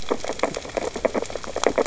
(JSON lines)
{"label": "biophony, sea urchins (Echinidae)", "recorder": "SoundTrap 600 or HydroMoth"}